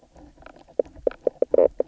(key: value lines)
label: biophony, knock croak
recorder: SoundTrap 300